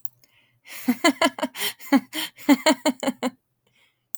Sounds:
Laughter